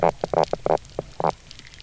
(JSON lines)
{"label": "biophony", "recorder": "SoundTrap 300"}